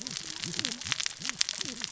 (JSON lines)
{"label": "biophony, cascading saw", "recorder": "SoundTrap 600 or HydroMoth"}